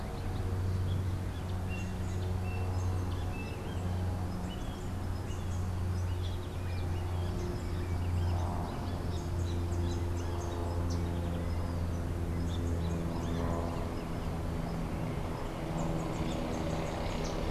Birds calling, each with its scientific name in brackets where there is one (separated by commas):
Great Kiskadee (Pitangus sulphuratus)